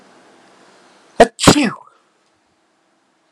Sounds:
Sneeze